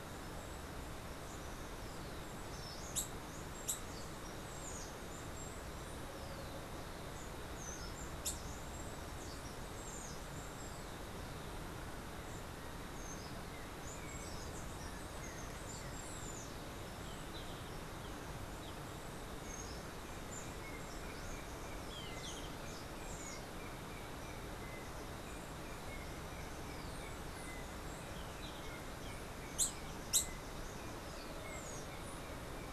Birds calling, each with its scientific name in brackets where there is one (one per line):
unidentified bird
Steely-vented Hummingbird (Saucerottia saucerottei)
Yellow-backed Oriole (Icterus chrysater)